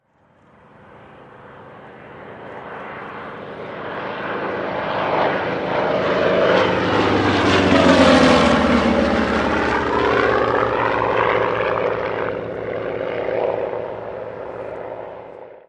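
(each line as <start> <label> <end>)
0.1 An airplane with a propeller approaches and gets louder before moving away and becoming quieter, demonstrating the Doppler effect. 15.6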